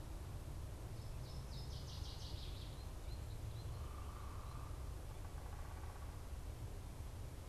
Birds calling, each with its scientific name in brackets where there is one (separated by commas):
American Goldfinch (Spinus tristis), unidentified bird, Northern Waterthrush (Parkesia noveboracensis)